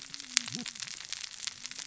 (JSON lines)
{"label": "biophony, cascading saw", "recorder": "SoundTrap 600 or HydroMoth"}